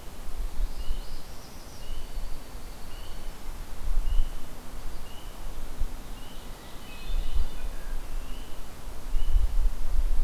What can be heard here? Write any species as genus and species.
Setophaga americana, Agelaius phoeniceus, Catharus guttatus, Seiurus aurocapilla